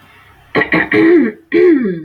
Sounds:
Throat clearing